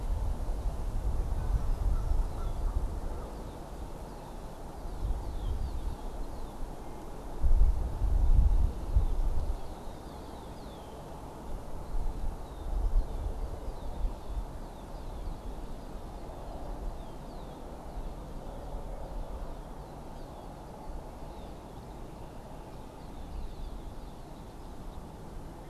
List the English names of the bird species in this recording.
Canada Goose, Red-winged Blackbird